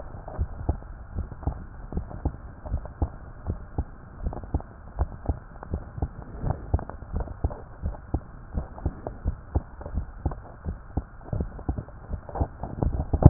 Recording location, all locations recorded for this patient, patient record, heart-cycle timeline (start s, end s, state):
tricuspid valve (TV)
aortic valve (AV)+pulmonary valve (PV)+tricuspid valve (TV)+mitral valve (MV)
#Age: Child
#Sex: Female
#Height: 139.0 cm
#Weight: 28.3 kg
#Pregnancy status: False
#Murmur: Absent
#Murmur locations: nan
#Most audible location: nan
#Systolic murmur timing: nan
#Systolic murmur shape: nan
#Systolic murmur grading: nan
#Systolic murmur pitch: nan
#Systolic murmur quality: nan
#Diastolic murmur timing: nan
#Diastolic murmur shape: nan
#Diastolic murmur grading: nan
#Diastolic murmur pitch: nan
#Diastolic murmur quality: nan
#Outcome: Abnormal
#Campaign: 2015 screening campaign
0.00	0.37	unannotated
0.37	0.50	S1
0.50	0.64	systole
0.64	0.78	S2
0.78	1.14	diastole
1.14	1.28	S1
1.28	1.44	systole
1.44	1.58	S2
1.58	1.92	diastole
1.92	2.06	S1
2.06	2.21	systole
2.21	2.34	S2
2.34	2.70	diastole
2.70	2.82	S1
2.82	2.98	systole
2.98	3.12	S2
3.12	3.43	diastole
3.43	3.60	S1
3.60	3.74	systole
3.74	3.88	S2
3.88	4.22	diastole
4.22	4.36	S1
4.36	4.50	systole
4.50	4.64	S2
4.64	4.96	diastole
4.96	5.10	S1
5.10	5.24	systole
5.24	5.38	S2
5.38	5.70	diastole
5.70	5.82	S1
5.82	5.98	systole
5.98	6.12	S2
6.12	6.42	diastole
6.42	6.58	S1
6.58	6.70	systole
6.70	6.84	S2
6.84	7.12	diastole
7.12	7.28	S1
7.28	7.40	systole
7.40	7.54	S2
7.54	7.81	diastole
7.81	7.96	S1
7.96	8.10	systole
8.10	8.24	S2
8.24	8.52	diastole
8.52	8.68	S1
8.68	8.82	systole
8.82	8.92	S2
8.92	9.22	diastole
9.22	9.38	S1
9.38	9.52	systole
9.52	9.66	S2
9.66	9.94	diastole
9.94	10.08	S1
10.08	10.22	systole
10.22	10.34	S2
10.34	10.62	diastole
10.62	10.78	S1
10.78	10.93	systole
10.93	11.04	S2
11.04	11.34	diastole
11.34	11.50	S1
11.50	11.64	systole
11.64	11.76	S2
11.76	12.08	diastole
12.08	12.20	S1
12.20	12.38	systole
12.38	12.52	S2
12.52	13.30	unannotated